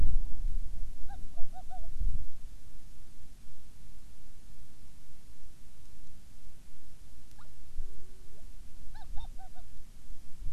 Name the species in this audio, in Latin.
Pterodroma sandwichensis